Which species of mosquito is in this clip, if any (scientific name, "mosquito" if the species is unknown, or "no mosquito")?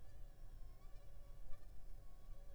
Anopheles funestus s.s.